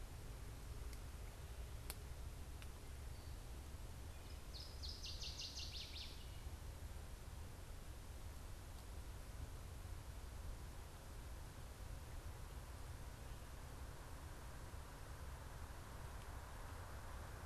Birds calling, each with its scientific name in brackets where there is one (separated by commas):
Northern Waterthrush (Parkesia noveboracensis)